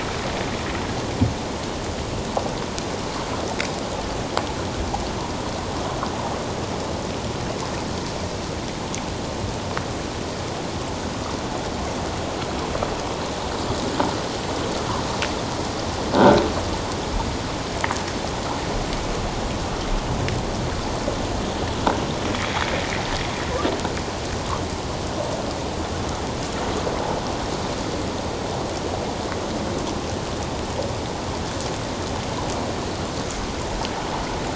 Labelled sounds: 16.1	16.4	croaking sound likely from a nearby submerged object, 1.3 to 1.6 kHz
22.3	22.6	sound from a nearby beach, 2.0 to 2.4 kHz

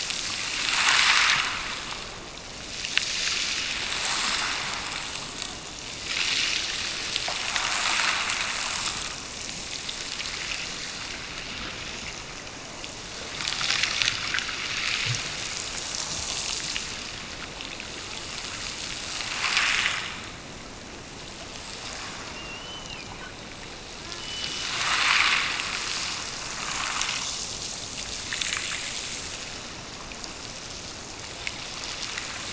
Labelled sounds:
24.1	25.0	killer whale, Bigg's (transient), Gulf of Alaska transient, 2.5 to 3.2 kHz

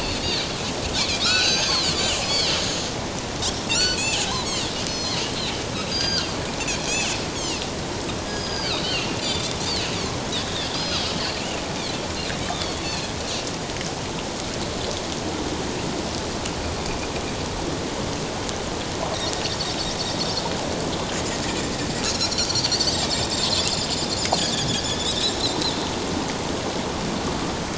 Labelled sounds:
0.0	1.9	Pacific white-sided dolphin, 1.2 to 6.6 kHz
2.2	2.5	Pacific white-sided dolphin, 4.8 to 5.2 kHz
3.7	7.6	Pacific white-sided dolphin, 1.3 to 8.0 kHz
8.3	9.6	Pacific white-sided dolphin, 1.1 to 7.2 kHz
10.4	11.1	Pacific white-sided dolphin, 3.2 to 5.1 kHz
12.5	13.1	Pacific white-sided dolphin, 2.4 to 4.5 kHz
22.0	23.3	Pacific white-sided dolphin, 3.5 to 4.8 kHz
24.4	25.7	Pacific white-sided dolphin, 1.6 to 4.2 kHz

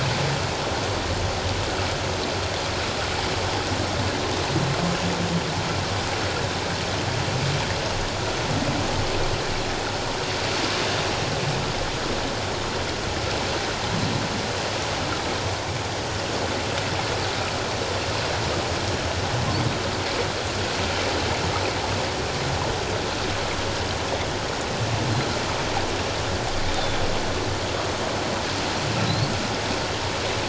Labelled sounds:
26.7	27.0	humpback whale, 3.4 to 3.7 kHz

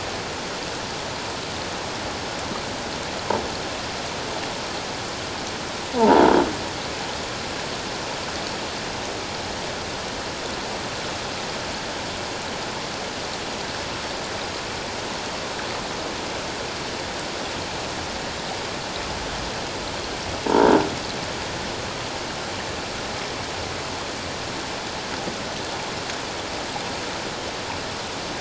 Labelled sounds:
6.0	6.3	croaking sound likely from a nearby submerged object, 0.81 to 1.0 kHz
20.5	20.7	croaking sound likely from a nearby submerged object, 0.84 to 1.0 kHz

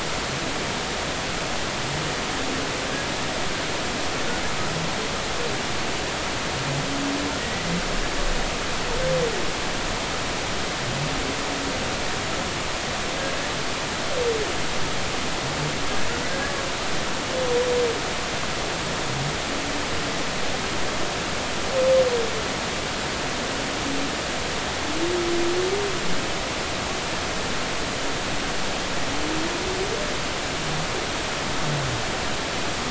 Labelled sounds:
7.4	7.7	humpback whale, 1.8 to 2.0 kHz
16.3	16.6	humpback whale, 1.6 to 1.8 kHz

